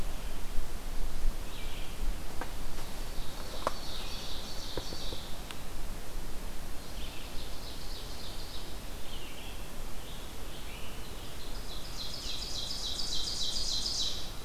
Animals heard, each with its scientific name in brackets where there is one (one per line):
Scarlet Tanager (Piranga olivacea)
Ovenbird (Seiurus aurocapilla)
Red-eyed Vireo (Vireo olivaceus)